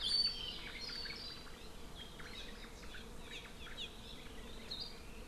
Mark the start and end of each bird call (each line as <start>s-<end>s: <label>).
0.6s-1.5s: Omao (Myadestes obscurus)
2.0s-2.7s: Omao (Myadestes obscurus)
3.2s-3.9s: Hawaii Amakihi (Chlorodrepanis virens)